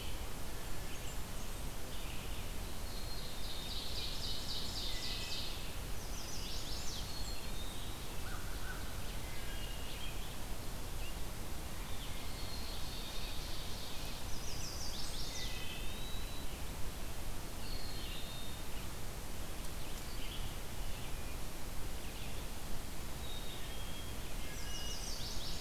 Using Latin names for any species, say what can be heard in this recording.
Vireo olivaceus, Setophaga fusca, Poecile atricapillus, Seiurus aurocapilla, Hylocichla mustelina, Setophaga pensylvanica, Corvus brachyrhynchos, Contopus virens